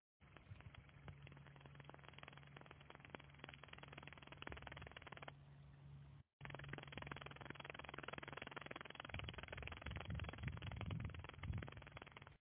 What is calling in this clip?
Tettigonia cantans, an orthopteran